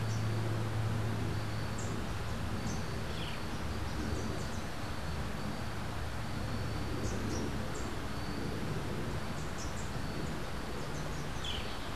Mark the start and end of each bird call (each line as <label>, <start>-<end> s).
Rufous-capped Warbler (Basileuterus rufifrons), 0.0-3.0 s
Rufous-capped Warbler (Basileuterus rufifrons), 6.7-8.1 s
Rufous-capped Warbler (Basileuterus rufifrons), 9.3-10.0 s
Boat-billed Flycatcher (Megarynchus pitangua), 11.2-11.9 s